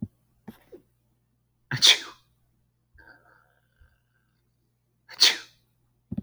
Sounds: Sneeze